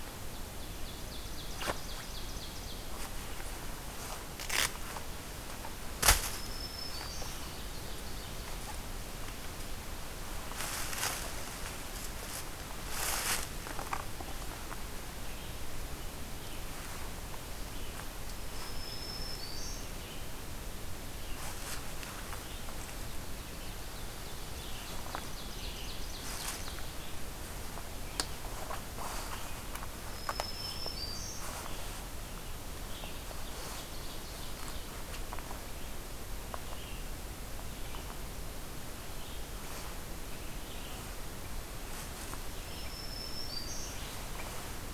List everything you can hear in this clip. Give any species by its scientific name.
Seiurus aurocapilla, Setophaga virens, Vireo olivaceus